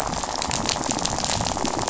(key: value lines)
label: biophony, rattle
recorder: SoundTrap 500